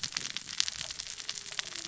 {"label": "biophony, cascading saw", "recorder": "SoundTrap 600 or HydroMoth"}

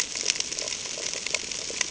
{"label": "ambient", "recorder": "HydroMoth"}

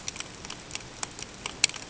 {"label": "ambient", "recorder": "HydroMoth"}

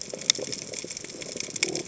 {"label": "biophony", "recorder": "HydroMoth"}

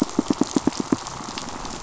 {"label": "biophony, pulse", "recorder": "SoundTrap 500"}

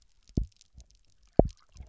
{"label": "biophony, double pulse", "recorder": "SoundTrap 300"}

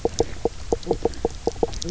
{"label": "biophony, knock croak", "recorder": "SoundTrap 300"}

